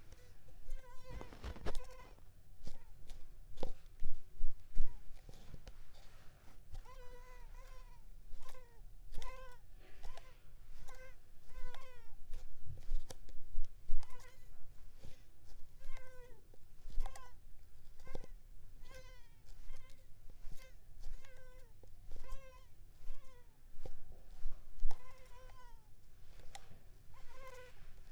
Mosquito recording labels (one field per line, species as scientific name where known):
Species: Mansonia uniformis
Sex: female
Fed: unfed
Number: one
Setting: cup